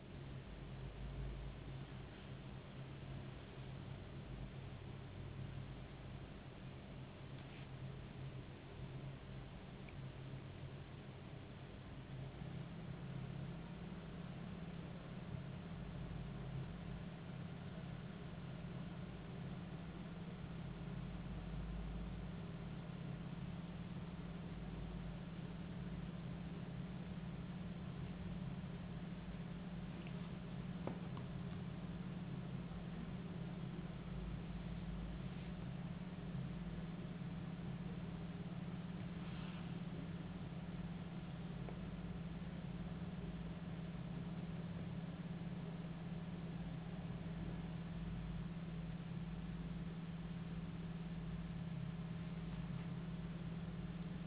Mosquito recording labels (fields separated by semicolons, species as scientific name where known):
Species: no mosquito; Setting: insect culture